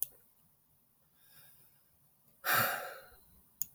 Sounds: Sigh